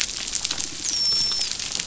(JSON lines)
{"label": "biophony, dolphin", "recorder": "SoundTrap 500"}